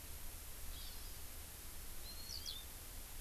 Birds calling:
Eurasian Skylark (Alauda arvensis)
Hawaii Amakihi (Chlorodrepanis virens)

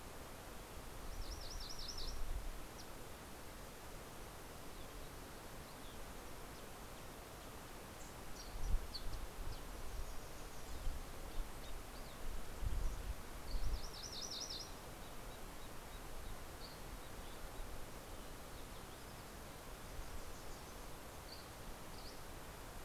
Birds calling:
MacGillivray's Warbler (Geothlypis tolmiei)
Dusky Flycatcher (Empidonax oberholseri)

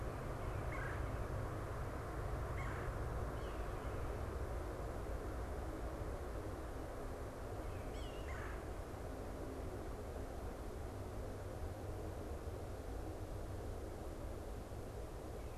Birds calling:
Red-bellied Woodpecker (Melanerpes carolinus)

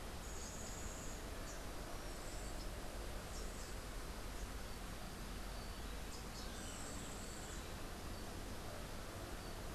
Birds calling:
Yellow-faced Grassquit (Tiaris olivaceus)

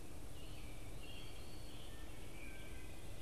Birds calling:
Wood Thrush (Hylocichla mustelina)
American Robin (Turdus migratorius)

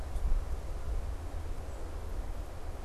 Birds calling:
unidentified bird

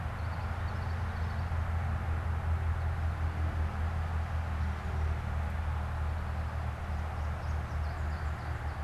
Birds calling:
Common Yellowthroat (Geothlypis trichas)
American Goldfinch (Spinus tristis)

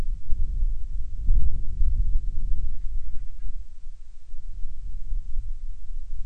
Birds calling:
Band-rumped Storm-Petrel (Hydrobates castro)

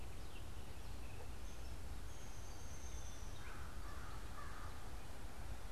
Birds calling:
Downy Woodpecker (Dryobates pubescens)
American Crow (Corvus brachyrhynchos)

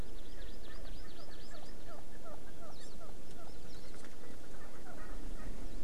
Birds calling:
Hawaii Amakihi (Chlorodrepanis virens)

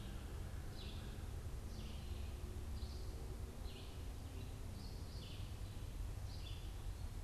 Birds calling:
Red-eyed Vireo (Vireo olivaceus)

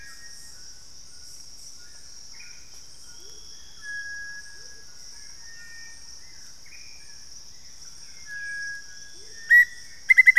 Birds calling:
Hauxwell's Thrush (Turdus hauxwelli)
Black-faced Antthrush (Formicarius analis)
Amazonian Motmot (Momotus momota)
White-throated Toucan (Ramphastos tucanus)
Cinereous Tinamou (Crypturellus cinereus)

